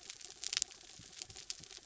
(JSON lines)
{"label": "anthrophony, mechanical", "recorder": "SoundTrap 300"}